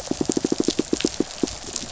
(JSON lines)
{"label": "biophony, pulse", "recorder": "SoundTrap 500"}